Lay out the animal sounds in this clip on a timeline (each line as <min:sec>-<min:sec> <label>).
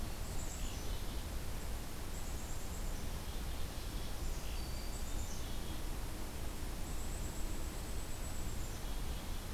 0:00.2-0:01.5 Black-capped Chickadee (Poecile atricapillus)
0:02.0-0:04.2 Black-capped Chickadee (Poecile atricapillus)
0:04.6-0:05.9 Black-capped Chickadee (Poecile atricapillus)
0:06.7-0:09.5 Black-capped Chickadee (Poecile atricapillus)